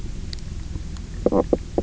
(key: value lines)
label: biophony, knock croak
recorder: SoundTrap 300